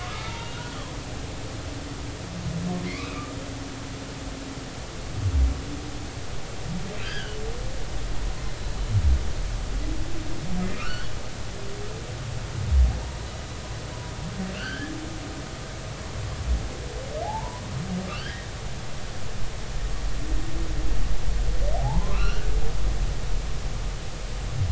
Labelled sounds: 0.0	0.8	humpback whale, 0.83 to 1.5 kHz
2.9	3.4	humpback whale, 1.1 to 2.6 kHz
7.0	7.4	humpback whale, 1.4 to 4.9 kHz
10.7	11.1	humpback whale, 1.1 to 3.0 kHz
14.5	14.9	humpback whale, 1.2 to 3.2 kHz
17.2	17.6	humpback whale, 0.80 to 1.1 kHz
18.1	18.5	humpback whale, 1.1 to 3.3 kHz
21.8	22.5	humpback whale, 0.80 to 4.5 kHz

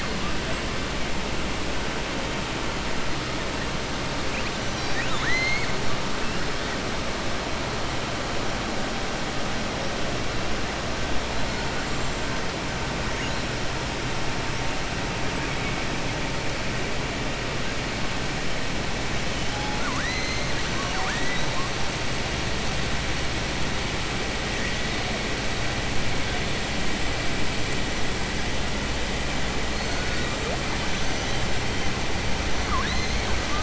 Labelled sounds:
4.6	5.7	killer whale, southern resident, 1.2 to 7.1 kHz
19.5	21.5	killer whale, southern resident, 0.72 to 6.4 kHz
32.6	33.1	killer whale, southern resident, 1.0 to 4.3 kHz

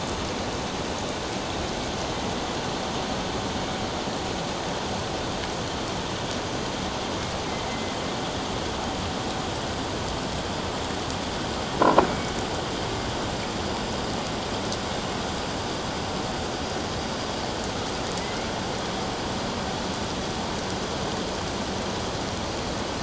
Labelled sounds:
7.7	7.9	killer whale, northern resident, A clan, AA subclan, A04 pod, 2.0 to 2.1 kHz
12.1	12.3	killer whale, northern resident, A clan, AA subclan, A04 pod, 2.2 to 2.3 kHz
18.1	18.5	killer whale, northern resident, A clan, 1.9 to 2.3 kHz

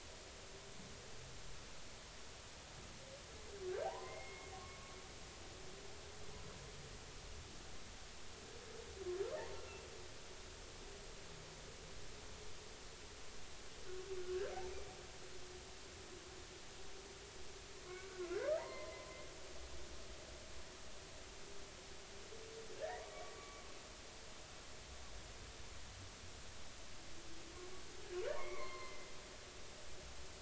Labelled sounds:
3.7	4.9	humpback whale, 0.80 to 2.2 kHz
18.1	19.1	humpback whale, 0.86 to 2.1 kHz
23.1	23.6	humpback whale, 1.1 to 2.4 kHz
28.3	29.1	humpback whale, 0.90 to 4.3 kHz

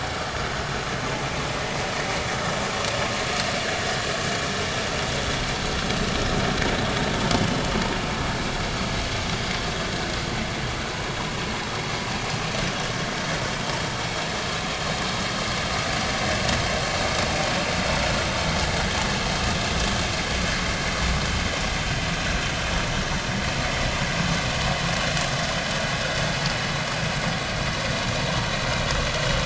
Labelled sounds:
17.2	17.5	vessel noise, 2.4 to 2.5 kHz

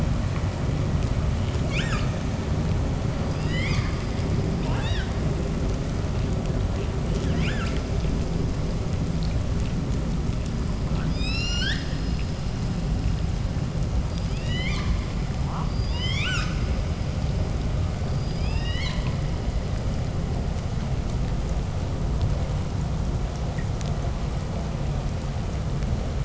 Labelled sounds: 1.6	2.1	killer whale, 0.78 to 8.0 kHz
3.1	3.9	killer whale, 1.4 to 8.0 kHz
4.6	5.1	killer whale, 0.49 to 8.0 kHz
7.2	7.9	killer whale, 0.61 to 8.0 kHz
10.7	11.9	killer whale, call S19, 0.73 to 8.0 kHz
14.0	15.1	killer whale, 0.70 to 8.0 kHz
15.4	16.6	killer whale, 0.46 to 8.0 kHz
17.9	19.3	killer whale, 1.2 to 8.0 kHz

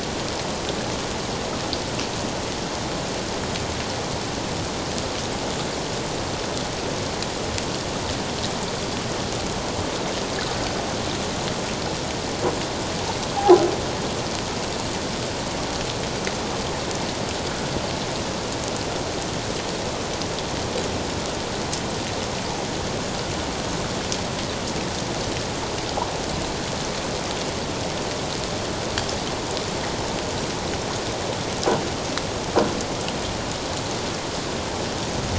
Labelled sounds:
13.4	13.6	croaking sound likely from a nearby submerged object, 0.78 to 0.88 kHz

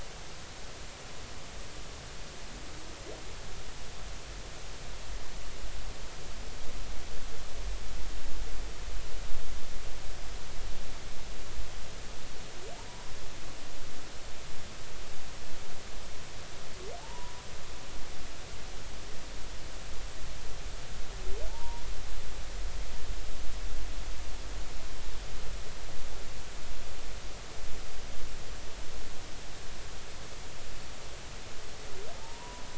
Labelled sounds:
17.0	17.3	humpback whale, 0.80 to 1.0 kHz
21.5	21.8	humpback whale, 0.83 to 0.99 kHz
32.2	32.6	humpback whale, 0.83 to 1.1 kHz

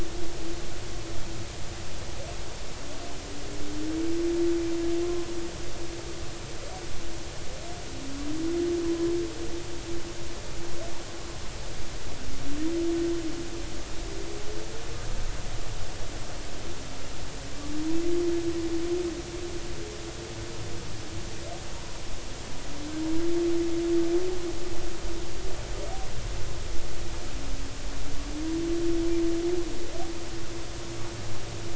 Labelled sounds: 5.0	5.3	humpback whale, 0.99 to 1.1 kHz

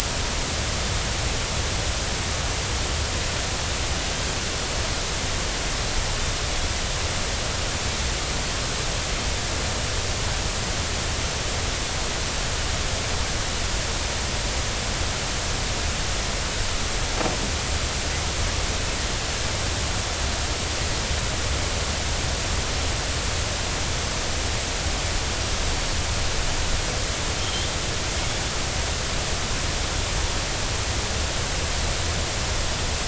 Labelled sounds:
27.4	27.7	Pacific white-sided dolphin, 3.0 to 3.3 kHz

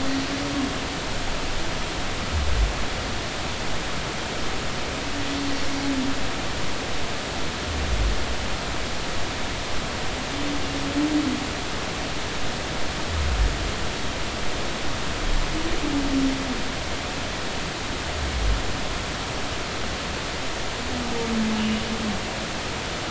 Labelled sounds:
21.6	21.8	humpback whale, 2.8 to 3.0 kHz

